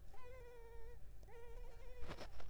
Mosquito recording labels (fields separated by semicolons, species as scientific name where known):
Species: Culex pipiens complex; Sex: female; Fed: unfed; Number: one; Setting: cup